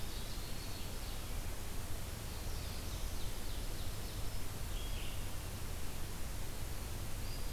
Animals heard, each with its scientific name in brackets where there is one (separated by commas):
Ovenbird (Seiurus aurocapilla), Eastern Wood-Pewee (Contopus virens), Black-throated Blue Warbler (Setophaga caerulescens), Black-throated Green Warbler (Setophaga virens), Red-eyed Vireo (Vireo olivaceus)